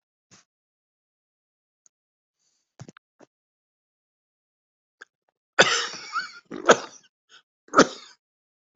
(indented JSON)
{
  "expert_labels": [
    {
      "quality": "good",
      "cough_type": "wet",
      "dyspnea": false,
      "wheezing": false,
      "stridor": false,
      "choking": false,
      "congestion": false,
      "nothing": true,
      "diagnosis": "lower respiratory tract infection",
      "severity": "severe"
    }
  ],
  "age": 70,
  "gender": "male",
  "respiratory_condition": false,
  "fever_muscle_pain": true,
  "status": "symptomatic"
}